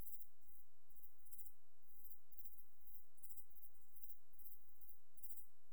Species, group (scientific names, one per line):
Pholidoptera griseoaptera
Orthoptera